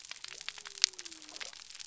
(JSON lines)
{"label": "biophony", "recorder": "SoundTrap 300"}